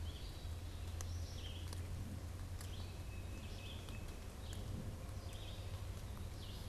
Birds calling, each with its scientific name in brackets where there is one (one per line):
Tufted Titmouse (Baeolophus bicolor)
Black-capped Chickadee (Poecile atricapillus)
Red-eyed Vireo (Vireo olivaceus)